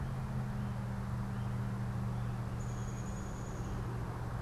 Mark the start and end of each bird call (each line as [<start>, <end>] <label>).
[0.00, 4.41] American Goldfinch (Spinus tristis)
[2.40, 3.80] Downy Woodpecker (Dryobates pubescens)